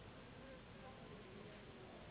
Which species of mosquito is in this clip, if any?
Anopheles gambiae s.s.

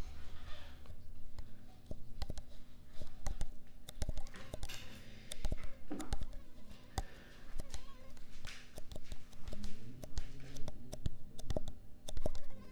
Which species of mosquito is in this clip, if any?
Anopheles arabiensis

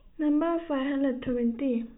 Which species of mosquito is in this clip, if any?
no mosquito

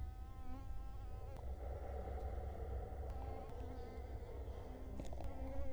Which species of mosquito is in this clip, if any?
Culex quinquefasciatus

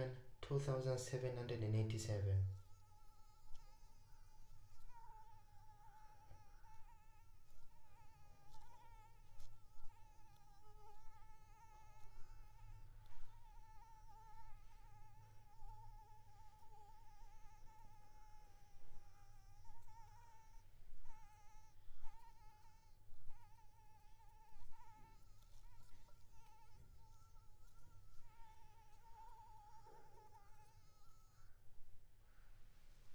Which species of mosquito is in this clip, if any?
Anopheles maculipalpis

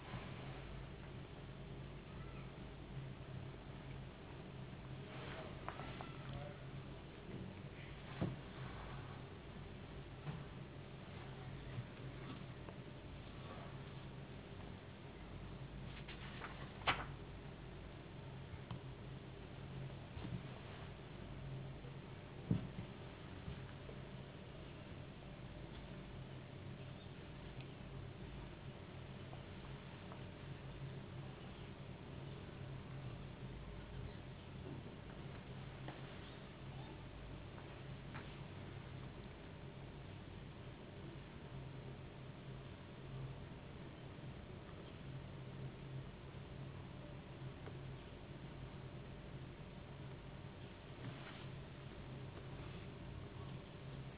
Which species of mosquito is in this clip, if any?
no mosquito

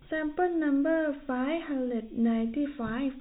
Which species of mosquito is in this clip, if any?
no mosquito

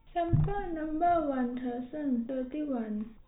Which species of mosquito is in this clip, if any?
no mosquito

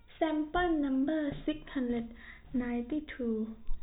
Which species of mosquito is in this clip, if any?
no mosquito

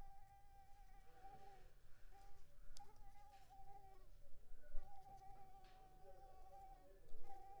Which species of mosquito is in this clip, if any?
Anopheles arabiensis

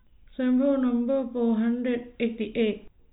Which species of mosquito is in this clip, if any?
no mosquito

